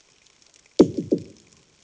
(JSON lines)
{"label": "anthrophony, bomb", "recorder": "HydroMoth"}